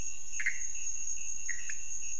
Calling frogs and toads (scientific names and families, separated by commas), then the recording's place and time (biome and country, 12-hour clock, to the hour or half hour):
Pithecopus azureus (Hylidae), Leptodactylus podicipinus (Leptodactylidae)
Cerrado, Brazil, 1:30am